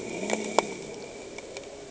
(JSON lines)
{"label": "anthrophony, boat engine", "recorder": "HydroMoth"}